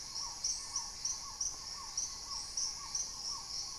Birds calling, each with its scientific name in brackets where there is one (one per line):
Paradise Tanager (Tangara chilensis)
Little Tinamou (Crypturellus soui)
Black-tailed Trogon (Trogon melanurus)
Hauxwell's Thrush (Turdus hauxwelli)